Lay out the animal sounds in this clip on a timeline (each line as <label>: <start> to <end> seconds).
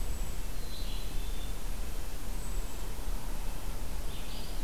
Red-breasted Nuthatch (Sitta canadensis): 0.0 to 4.0 seconds
Red-eyed Vireo (Vireo olivaceus): 0.0 to 4.6 seconds
unidentified call: 0.0 to 4.6 seconds
Black-capped Chickadee (Poecile atricapillus): 0.5 to 1.7 seconds